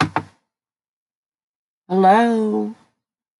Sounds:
Cough